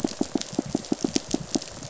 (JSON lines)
{"label": "biophony, pulse", "recorder": "SoundTrap 500"}